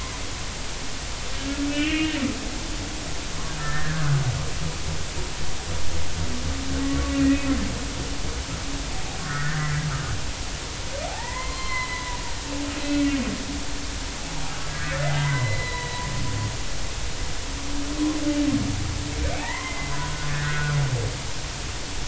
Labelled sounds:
1.7	2.1	humpback whale, 1.7 to 3.2 kHz
3.6	4.0	humpback whale, 1.2 to 1.9 kHz
6.8	7.5	humpback whale, 1.1 to 2.6 kHz
9.2	9.9	humpback whale, 1.2 to 2.1 kHz
11.0	12.2	humpback whale, 0.80 to 4.2 kHz
15.0	16.0	humpback whale, 0.93 to 4.1 kHz
16.6	17.0	humpback whale, 3.9 to 4.0 kHz
19.3	20.8	humpback whale, 0.80 to 2.2 kHz

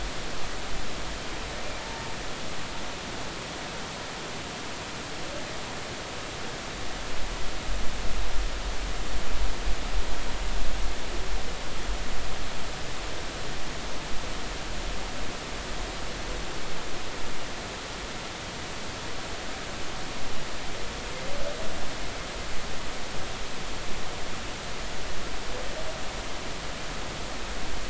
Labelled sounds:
1.8	2.2	humpback whale, 0.83 to 0.96 kHz

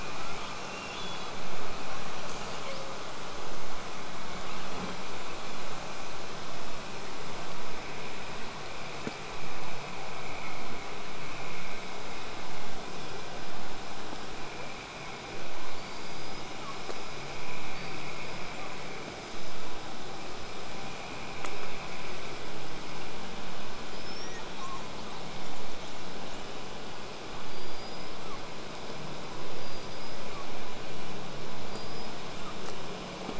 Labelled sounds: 0.0	1.4	killer whale, southern resident, L pod, call S02iii, 1.1 to 8.0 kHz
2.2	3.1	killer whale, southern resident, call S08i, 1.8 to 8.0 kHz
4.3	5.0	killer whale, southern resident, 1.4 to 4.3 kHz
15.7	16.9	killer whale, southern resident, L pod, call S19, 0.70 to 8.0 kHz
17.7	18.8	killer whale, southern resident, L pod, call S19, 0.61 to 8.0 kHz
23.9	24.5	killer whale, southern resident, whistle, 4.7 to 8.0 kHz
24.2	25.3	killer whale, southern resident, 0.82 to 2.0 kHz
24.6	26.6	killer whale, southern resident, call S10, 2.9 to 8.0 kHz
27.5	28.4	killer whale, southern resident, L pod, call S19, 0.86 to 8.0 kHz
29.5	30.6	killer whale, southern resident, L pod, call S19, 0.70 to 8.0 kHz
31.6	32.6	killer whale, southern resident, L pod, call S19, 0.70 to 8.0 kHz

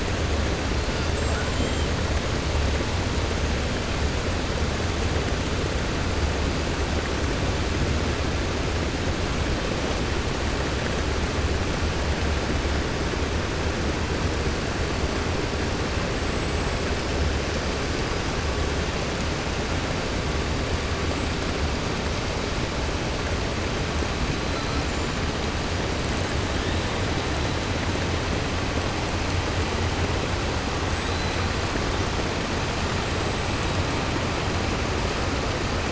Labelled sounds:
1.0	1.9	killer whale, 6.6 to 8.0 kHz
21.1	21.5	killer whale, 7.5 to 8.0 kHz

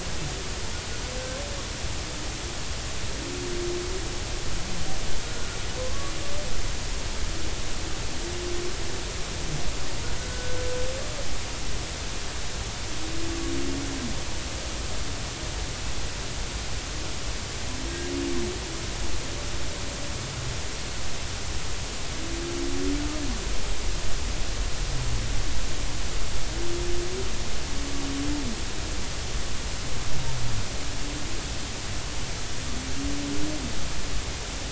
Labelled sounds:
5.2	6.1	humpback whale, 0.99 to 1.5 kHz
10.2	10.6	humpback whale, 1.4 to 1.5 kHz

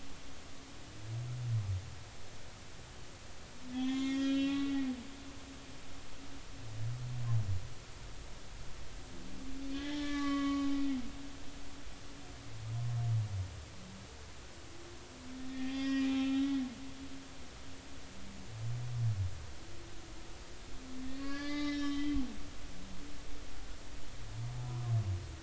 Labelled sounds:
3.7	4.8	humpback whale, 0.99 to 3.9 kHz
9.7	10.7	humpback whale, 1.1 to 3.1 kHz
15.5	16.6	humpback whale, 0.80 to 5.4 kHz
21.0	22.2	humpback whale, 1.1 to 5.3 kHz

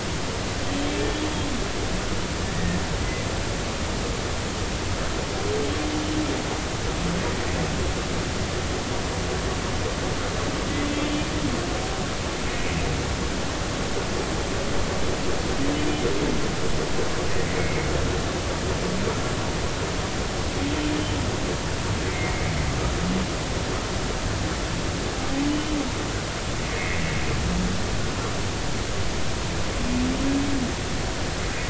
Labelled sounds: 0.7	1.3	humpback whale, 3.0 to 3.4 kHz
2.5	2.8	humpback whale, 1.8 to 1.9 kHz
17.6	17.9	humpback whale, 2.1 to 2.2 kHz
22.1	22.6	humpback whale, 1.9 to 2.3 kHz
25.5	25.8	humpback whale, 2.9 to 3.1 kHz
26.7	27.0	humpback whale, 1.9 to 2.3 kHz

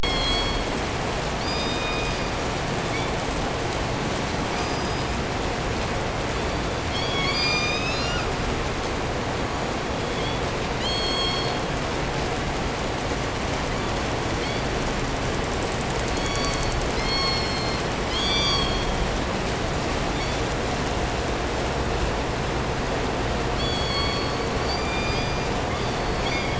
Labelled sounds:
0.0	0.8	killer whale, southern resident, call S16, 0.88 to 7.8 kHz
1.4	3.3	killer whale, southern resident, call S17, 1.0 to 8.0 kHz
4.5	5.4	killer whale, southern resident, call S17, 1.0 to 7.6 kHz
6.3	6.9	killer whale, southern resident, call S16, 2.2 to 5.7 kHz
6.9	8.4	killer whale, southern resident, call S17, 0.72 to 8.0 kHz
9.4	11.7	killer whale, southern resident, call S16, 0.92 to 8.0 kHz
13.7	14.8	killer whale, southern resident, call S16, 1.2 to 7.0 kHz
16.1	19.2	killer whale, southern resident, call S16, 0.67 to 8.0 kHz
20.0	20.5	killer whale, 2.0 to 7.4 kHz
23.5	24.6	killer whale, southern resident, call S16, 0.98 to 8.0 kHz
24.7	25.5	killer whale, southern resident, call S17, 2.0 to 8.0 kHz
25.7	26.5	killer whale, 1.9 to 6.2 kHz

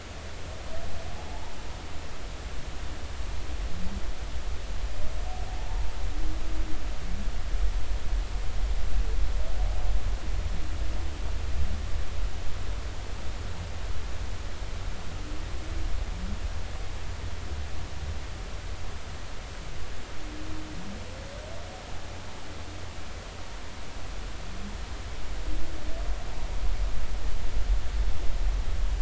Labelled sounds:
1.1	1.4	humpback whale, 0.80 to 0.93 kHz

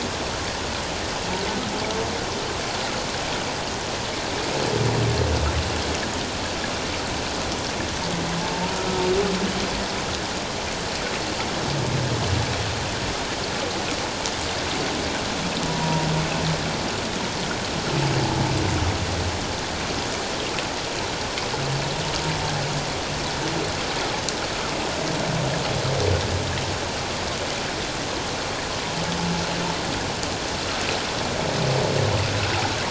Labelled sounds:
8.4	9.0	humpback whale, 0.81 to 1.5 kHz
15.6	16.1	humpback whale, 0.91 to 1.0 kHz

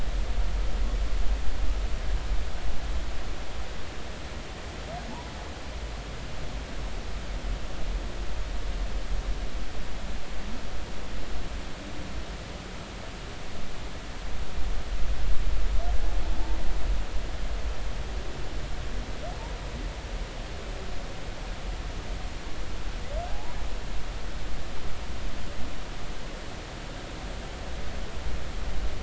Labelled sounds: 23.3	23.6	humpback whale, 0.80 to 1.0 kHz

